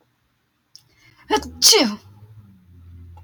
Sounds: Sneeze